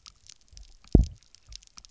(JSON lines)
{"label": "biophony, double pulse", "recorder": "SoundTrap 300"}